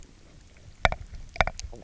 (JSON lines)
{"label": "biophony, knock croak", "recorder": "SoundTrap 300"}